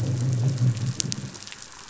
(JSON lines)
{"label": "anthrophony, boat engine", "recorder": "SoundTrap 500"}